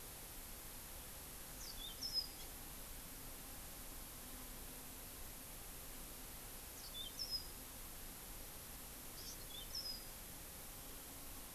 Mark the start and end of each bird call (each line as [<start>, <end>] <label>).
[1.52, 2.52] Yellow-fronted Canary (Crithagra mozambica)
[2.33, 2.52] Hawaii Amakihi (Chlorodrepanis virens)
[6.72, 7.62] Yellow-fronted Canary (Crithagra mozambica)
[9.12, 9.43] Hawaii Amakihi (Chlorodrepanis virens)
[9.22, 10.22] Yellow-fronted Canary (Crithagra mozambica)